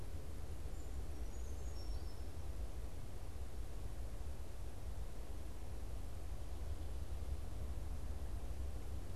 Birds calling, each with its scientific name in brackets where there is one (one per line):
Brown Creeper (Certhia americana)